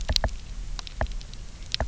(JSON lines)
{"label": "biophony, knock", "recorder": "SoundTrap 300"}